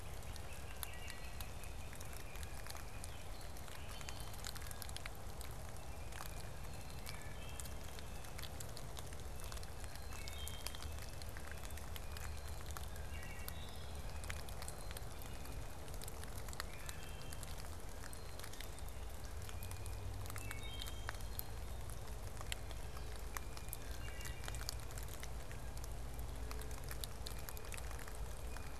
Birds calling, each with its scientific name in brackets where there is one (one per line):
Blue-headed Vireo (Vireo solitarius)
Blue Jay (Cyanocitta cristata)
Wood Thrush (Hylocichla mustelina)
Great Crested Flycatcher (Myiarchus crinitus)